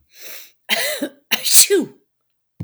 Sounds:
Sneeze